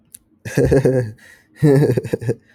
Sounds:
Laughter